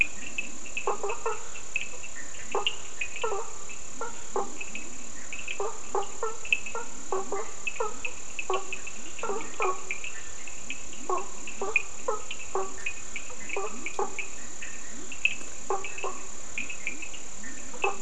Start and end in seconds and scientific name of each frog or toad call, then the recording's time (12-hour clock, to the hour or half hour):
0.0	18.0	Leptodactylus latrans
0.0	18.0	Sphaenorhynchus surdus
0.6	1.9	Boana faber
2.4	4.9	Boana faber
5.4	10.2	Boana faber
10.8	14.5	Boana faber
15.4	16.4	Boana faber
3:30am